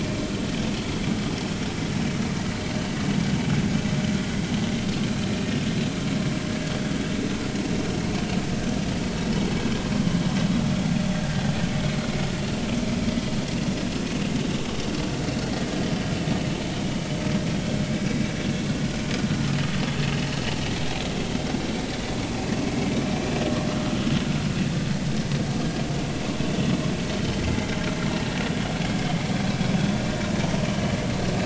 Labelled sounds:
27.4	27.7	vessel noise, 2.0 to 2.1 kHz

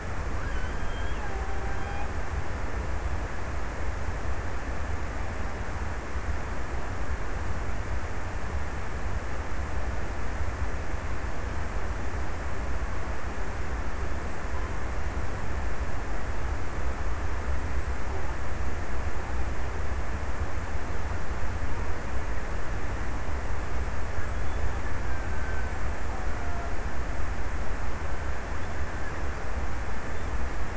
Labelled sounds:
0.0	2.8	killer whale, Bigg's (transient), 0.63 to 1.8 kHz
24.8	27.4	killer whale, Bigg's (transient), 0.52 to 1.8 kHz

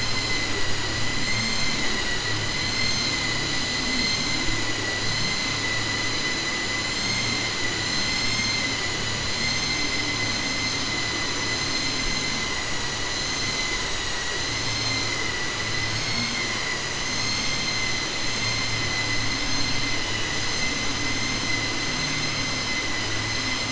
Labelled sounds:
1.2	1.7	vessel noise, 2.0 to 3.1 kHz

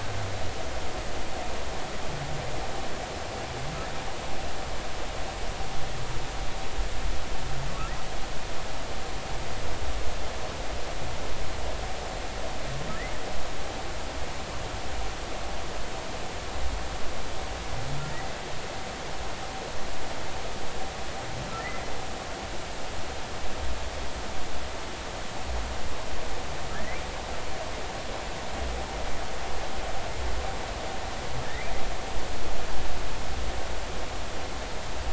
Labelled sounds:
18.1	18.4	humpback whale, 1.8 to 2.0 kHz

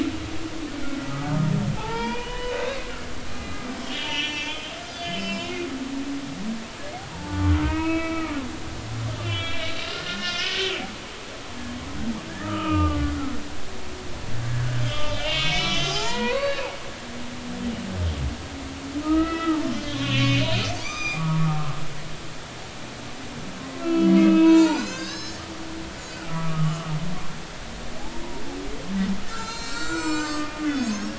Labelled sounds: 0.8	1.1	humpback whale, 1.3 to 1.5 kHz
1.8	5.7	humpback whale, 0.80 to 7.5 kHz
7.1	8.4	humpback whale, 0.83 to 3.0 kHz
9.2	10.8	humpback whale, 1.3 to 5.1 kHz
12.4	13.1	humpback whale, 1.1 to 3.1 kHz
14.9	16.6	humpback whale, 0.80 to 4.7 kHz
19.0	21.5	humpback whale, 1.1 to 6.4 kHz
23.8	25.4	humpback whale, 0.83 to 7.7 kHz
26.3	26.9	humpback whale, 1.1 to 3.0 kHz
29.3	31.1	humpback whale, 0.86 to 8.0 kHz

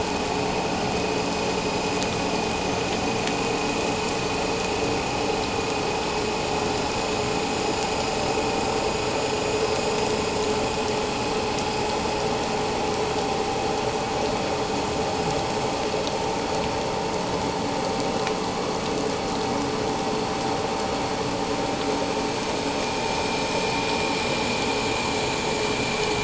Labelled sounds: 23.1	23.4	vessel noise, 2.3 to 2.6 kHz

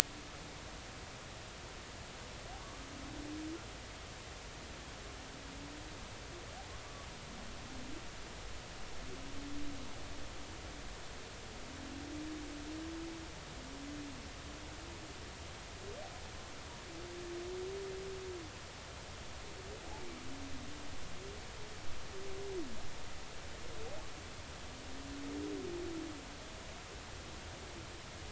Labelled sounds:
2.6	2.8	humpback whale, 1.1 to 1.3 kHz

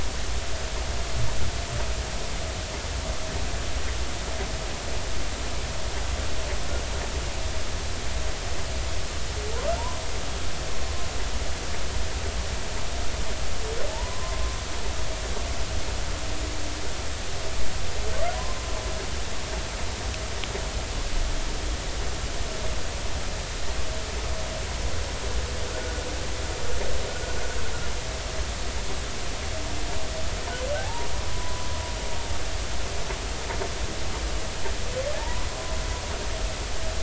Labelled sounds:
13.9	14.4	humpback whale, 0.83 to 1.1 kHz
30.8	31.1	humpback whale, 0.80 to 1.1 kHz
32.3	32.7	humpback whale, 0.96 to 1.1 kHz
35.1	35.5	humpback whale, 0.80 to 1.1 kHz

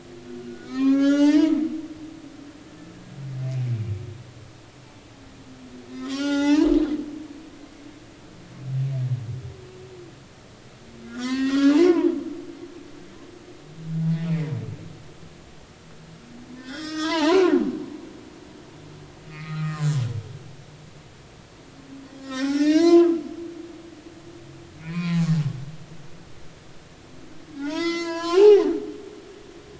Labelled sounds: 0.4	1.6	humpback whale, 0.80 to 6.4 kHz
3.6	3.9	humpback whale, 2.2 to 2.5 kHz
6.0	6.7	humpback whale, 0.80 to 7.5 kHz
11.0	12.1	humpback whale, 0.80 to 5.8 kHz
14.0	14.3	humpback whale, 0.80 to 0.86 kHz
16.6	18.1	humpback whale, 0.80 to 5.4 kHz
19.3	19.9	humpback whale, 0.99 to 2.7 kHz
22.2	23.1	humpback whale, 0.80 to 5.9 kHz
24.7	25.2	humpback whale, 0.96 to 2.6 kHz
27.6	29.4	humpback whale, 0.80 to 7.2 kHz

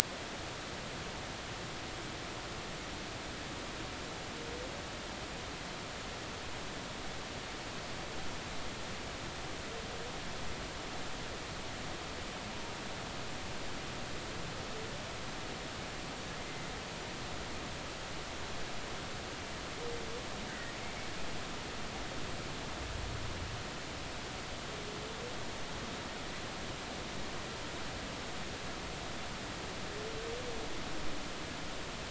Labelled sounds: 20.5	20.7	humpback whale, 1.4 to 2.0 kHz

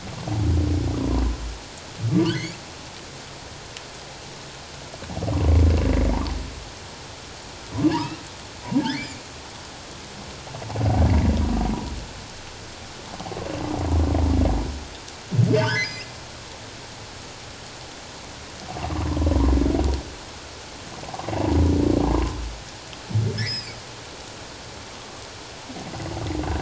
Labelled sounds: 2.1	2.6	humpback whale, 1.1 to 3.4 kHz
8.0	9.2	humpback whale, 1.1 to 2.5 kHz
11.1	11.4	humpback whale, 1.9 to 2.3 kHz
15.5	16.2	humpback whale, 1.4 to 6.2 kHz
18.9	19.2	humpback whale, 0.91 to 1.3 kHz
22.1	22.4	humpback whale, 0.88 to 1.1 kHz
23.4	23.8	humpback whale, 1.6 to 5.4 kHz

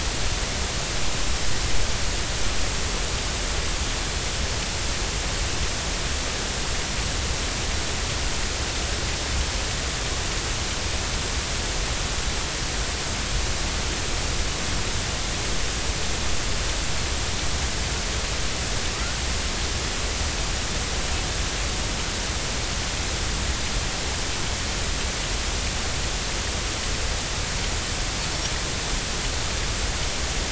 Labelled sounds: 18.9	19.2	killer whale, 1.1 to 1.6 kHz

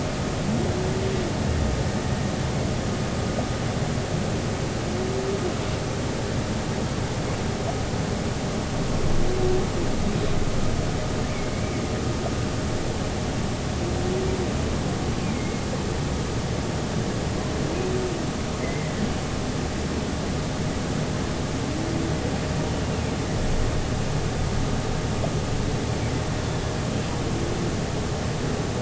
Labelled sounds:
15.3	15.6	humpback whale, 2.0 to 2.2 kHz
18.6	19.1	humpback whale, 1.7 to 2.1 kHz

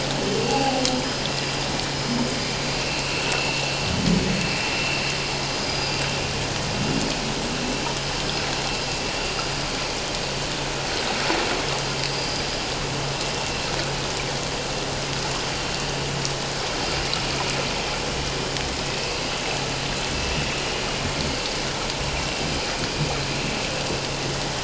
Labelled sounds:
0.5	0.8	humpback whale, 0.78 to 0.91 kHz
2.7	3.6	vessel noise, 2.4 to 2.9 kHz
5.6	6.0	vessel noise, 4.8 to 5.0 kHz
12.1	12.4	vessel noise, 4.8 to 5.0 kHz

